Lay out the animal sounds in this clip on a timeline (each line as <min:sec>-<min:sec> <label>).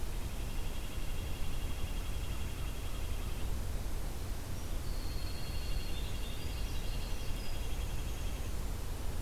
0:00.0-0:03.5 Red-breasted Nuthatch (Sitta canadensis)
0:04.5-0:08.7 Winter Wren (Troglodytes hiemalis)
0:05.1-0:08.6 Red-breasted Nuthatch (Sitta canadensis)